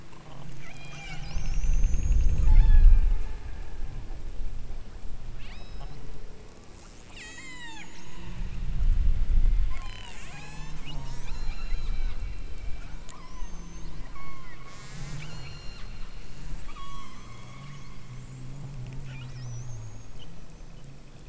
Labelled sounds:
0.6	1.3	killer whale, southern Alaska resident, 1.2 to 7.4 kHz
2.3	3.4	killer whale, southern Alaska resident, 0.62 to 6.9 kHz
5.3	6.0	killer whale, southern Alaska resident, 1.6 to 7.9 kHz
6.6	8.1	killer whale, southern Alaska resident, 0.59 to 8.0 kHz
9.7	12.2	killer whale, southern Alaska resident, 0.55 to 8.0 kHz
12.9	13.6	killer whale, southern Alaska resident, 0.66 to 3.2 kHz
14.0	15.9	killer whale, southern Alaska resident, 0.80 to 8.0 kHz
16.7	17.9	killer whale, southern Alaska resident, 0.82 to 7.7 kHz

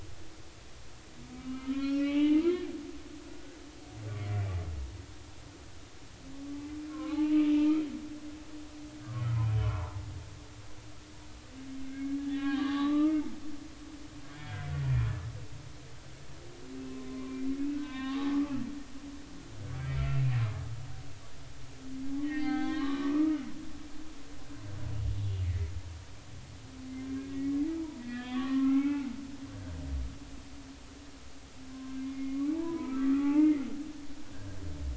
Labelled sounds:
1.4	2.6	humpback whale, 0.80 to 4.5 kHz
3.3	3.6	humpback whale, 1.4 to 1.7 kHz
6.9	7.9	humpback whale, 0.80 to 1.5 kHz
9.6	9.9	humpback whale, 0.86 to 1.2 kHz
11.8	13.2	humpback whale, 0.80 to 3.6 kHz
14.3	14.6	humpback whale, 3.2 to 3.4 kHz
17.1	17.4	humpback whale, 0.99 to 1.2 kHz
17.7	18.5	humpback whale, 0.80 to 3.8 kHz
22.2	23.4	humpback whale, 0.80 to 4.5 kHz
25.4	25.7	humpback whale, 1.7 to 2.4 kHz
28.0	29.1	humpback whale, 0.80 to 3.6 kHz
31.7	33.6	humpback whale, 0.80 to 2.2 kHz

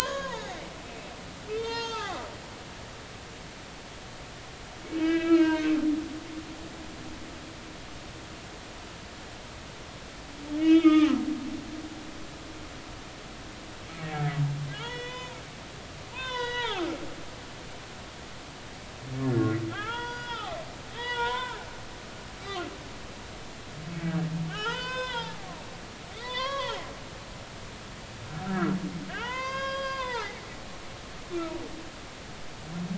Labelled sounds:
0.0	0.3	humpback whale, 6.3 to 6.8 kHz
1.0	2.3	humpback whale, 0.80 to 6.5 kHz
5.0	6.5	humpback whale, 1.2 to 3.2 kHz
10.5	11.1	humpback whale, 1.2 to 3.4 kHz
14.1	14.3	humpback whale, 2.1 to 2.3 kHz
14.7	15.4	humpback whale, 0.83 to 5.5 kHz
16.1	16.9	humpback whale, 0.80 to 5.6 kHz
19.3	21.7	humpback whale, 0.80 to 4.9 kHz
24.5	25.4	humpback whale, 0.80 to 6.7 kHz
26.1	26.8	humpback whale, 0.80 to 4.8 kHz
28.5	30.4	humpback whale, 0.80 to 6.5 kHz

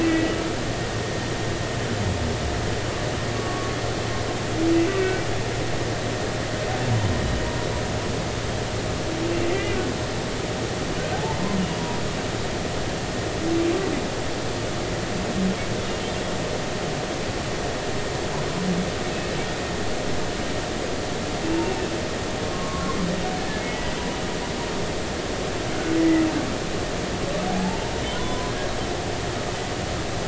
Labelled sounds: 0.0	0.3	humpback whale, 1.9 to 2.7 kHz
3.4	3.7	humpback whale, 1.1 to 1.2 kHz
5.0	5.3	humpback whale, 2.2 to 2.4 kHz
9.5	9.8	humpback whale, 1.9 to 2.5 kHz
11.7	12.0	humpback whale, 0.90 to 0.99 kHz
22.5	23.9	humpback whale, 0.99 to 2.0 kHz
26.0	26.2	humpback whale, 1.9 to 2.0 kHz
27.5	28.5	humpback whale, 0.80 to 1.1 kHz

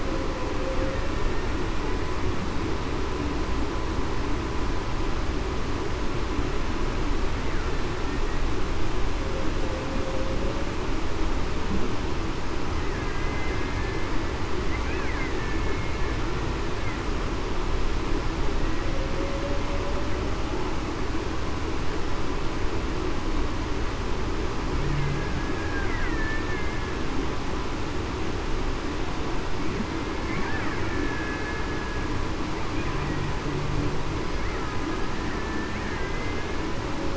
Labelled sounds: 12.9	13.3	killer whale, Bigg's (transient), 1.6 to 1.8 kHz
15.4	15.9	killer whale, Bigg's (transient), 2.1 to 2.2 kHz
26.0	26.9	killer whale, Bigg's (transient), 1.7 to 2.1 kHz
30.8	31.6	killer whale, Bigg's (transient), 1.6 to 1.8 kHz
35.3	36.5	killer whale, Bigg's (transient), 1.7 to 2.1 kHz

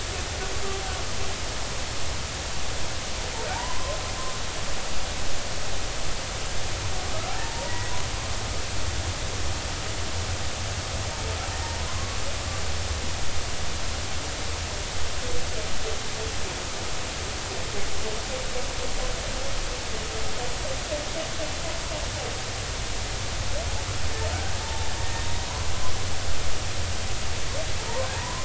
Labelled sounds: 3.5	4.0	humpback whale, 0.80 to 1.2 kHz
7.4	7.9	humpback whale, 0.83 to 2.0 kHz
11.5	12.2	humpback whale, 0.96 to 1.9 kHz
25.1	25.4	humpback whale, 3.6 to 3.8 kHz
28.1	28.4	humpback whale, 0.83 to 1.1 kHz

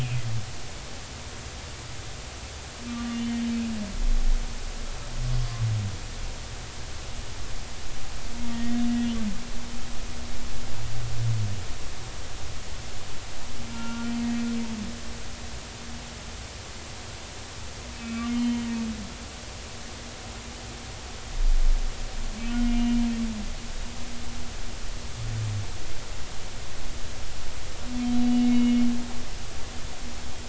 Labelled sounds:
2.9	3.2	humpback whale, 1.1 to 1.2 kHz
8.5	8.8	humpback whale, 1.8 to 2.0 kHz
13.7	14.1	humpback whale, 0.86 to 1.5 kHz
18.0	18.7	humpback whale, 2.3 to 3.2 kHz
22.7	23.0	humpback whale, 2.8 to 2.9 kHz
28.4	28.8	humpback whale, 2.1 to 2.9 kHz

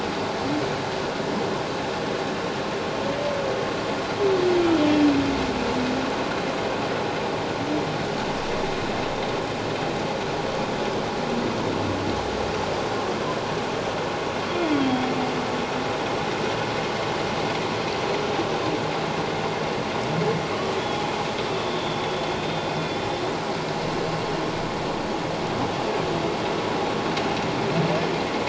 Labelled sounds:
22.4	23.2	humpback whale, 3.5 to 5.3 kHz

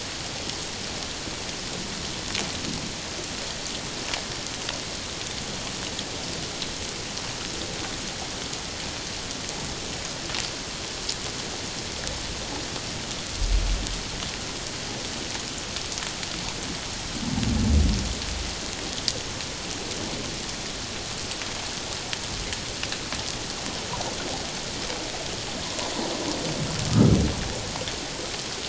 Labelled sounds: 25.6	25.9	humpback whale, 0.91 to 1.1 kHz
26.9	27.2	humpback whale, 1.2 to 1.4 kHz

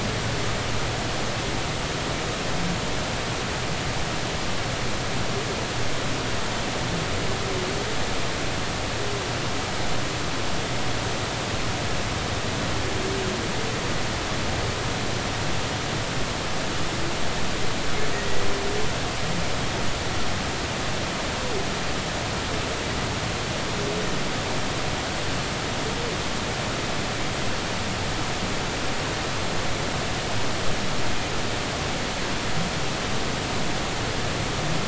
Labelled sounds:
18.1	18.4	humpback whale, 1.8 to 2.0 kHz

